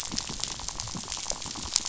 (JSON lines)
{"label": "biophony, rattle", "recorder": "SoundTrap 500"}